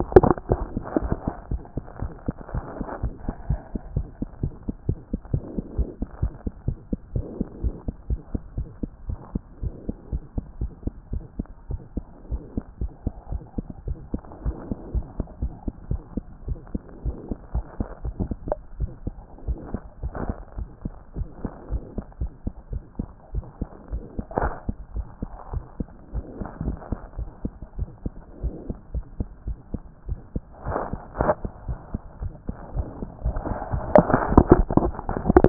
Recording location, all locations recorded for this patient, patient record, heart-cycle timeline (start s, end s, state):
mitral valve (MV)
aortic valve (AV)+mitral valve (MV)
#Age: Child
#Sex: Female
#Height: 76.0 cm
#Weight: 10.4 kg
#Pregnancy status: False
#Murmur: Present
#Murmur locations: aortic valve (AV)+mitral valve (MV)
#Most audible location: mitral valve (MV)
#Systolic murmur timing: Early-systolic
#Systolic murmur shape: Decrescendo
#Systolic murmur grading: I/VI
#Systolic murmur pitch: Low
#Systolic murmur quality: Musical
#Diastolic murmur timing: nan
#Diastolic murmur shape: nan
#Diastolic murmur grading: nan
#Diastolic murmur pitch: nan
#Diastolic murmur quality: nan
#Outcome: Normal
#Campaign: 2014 screening campaign
0.00	1.50	unannotated
1.50	1.62	S1
1.62	1.76	systole
1.76	1.84	S2
1.84	2.00	diastole
2.00	2.12	S1
2.12	2.26	systole
2.26	2.36	S2
2.36	2.52	diastole
2.52	2.64	S1
2.64	2.78	systole
2.78	2.86	S2
2.86	3.02	diastole
3.02	3.14	S1
3.14	3.24	systole
3.24	3.34	S2
3.34	3.48	diastole
3.48	3.60	S1
3.60	3.72	systole
3.72	3.80	S2
3.80	3.94	diastole
3.94	4.06	S1
4.06	4.20	systole
4.20	4.28	S2
4.28	4.42	diastole
4.42	4.52	S1
4.52	4.66	systole
4.66	4.74	S2
4.74	4.88	diastole
4.88	4.98	S1
4.98	5.12	systole
5.12	5.20	S2
5.20	5.32	diastole
5.32	5.44	S1
5.44	5.54	systole
5.54	5.64	S2
5.64	5.76	diastole
5.76	5.88	S1
5.88	6.00	systole
6.00	6.08	S2
6.08	6.22	diastole
6.22	6.32	S1
6.32	6.44	systole
6.44	6.52	S2
6.52	6.66	diastole
6.66	6.78	S1
6.78	6.90	systole
6.90	6.98	S2
6.98	7.14	diastole
7.14	7.26	S1
7.26	7.38	systole
7.38	7.46	S2
7.46	7.62	diastole
7.62	7.74	S1
7.74	7.86	systole
7.86	7.94	S2
7.94	8.10	diastole
8.10	8.20	S1
8.20	8.32	systole
8.32	8.42	S2
8.42	8.56	diastole
8.56	8.68	S1
8.68	8.82	systole
8.82	8.90	S2
8.90	9.08	diastole
9.08	9.18	S1
9.18	9.32	systole
9.32	9.42	S2
9.42	9.62	diastole
9.62	9.74	S1
9.74	9.86	systole
9.86	9.96	S2
9.96	10.12	diastole
10.12	10.22	S1
10.22	10.36	systole
10.36	10.44	S2
10.44	10.60	diastole
10.60	10.72	S1
10.72	10.84	systole
10.84	10.92	S2
10.92	11.12	diastole
11.12	11.22	S1
11.22	11.38	systole
11.38	11.46	S2
11.46	11.70	diastole
11.70	11.80	S1
11.80	11.94	systole
11.94	12.04	S2
12.04	12.30	diastole
12.30	12.42	S1
12.42	12.56	systole
12.56	12.64	S2
12.64	12.80	diastole
12.80	12.92	S1
12.92	13.04	systole
13.04	13.12	S2
13.12	13.30	diastole
13.30	13.42	S1
13.42	13.56	systole
13.56	13.66	S2
13.66	13.86	diastole
13.86	13.98	S1
13.98	14.12	systole
14.12	14.22	S2
14.22	14.44	diastole
14.44	14.56	S1
14.56	14.68	systole
14.68	14.76	S2
14.76	14.94	diastole
14.94	15.06	S1
15.06	15.18	systole
15.18	15.26	S2
15.26	15.42	diastole
15.42	15.52	S1
15.52	15.66	systole
15.66	15.74	S2
15.74	15.90	diastole
15.90	16.02	S1
16.02	16.14	systole
16.14	16.24	S2
16.24	16.46	diastole
16.46	16.58	S1
16.58	16.72	systole
16.72	16.82	S2
16.82	17.04	diastole
17.04	17.16	S1
17.16	17.28	systole
17.28	17.36	S2
17.36	17.54	diastole
17.54	17.64	S1
17.64	17.78	systole
17.78	17.88	S2
17.88	18.04	diastole
18.04	35.49	unannotated